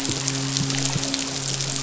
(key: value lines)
label: biophony, midshipman
recorder: SoundTrap 500

label: biophony
recorder: SoundTrap 500